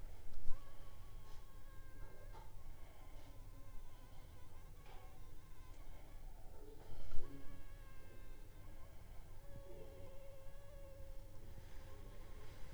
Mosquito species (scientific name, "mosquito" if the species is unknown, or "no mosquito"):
Anopheles funestus s.s.